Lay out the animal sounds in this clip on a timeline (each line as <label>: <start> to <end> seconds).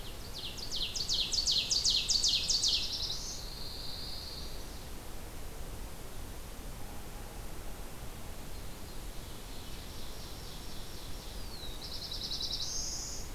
Ovenbird (Seiurus aurocapilla): 0.0 to 3.0 seconds
Pine Warbler (Setophaga pinus): 2.3 to 4.6 seconds
Chestnut-sided Warbler (Setophaga pensylvanica): 4.1 to 4.8 seconds
Ovenbird (Seiurus aurocapilla): 8.7 to 11.7 seconds
Black-throated Blue Warbler (Setophaga caerulescens): 11.2 to 13.3 seconds